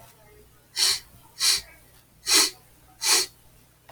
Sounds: Sniff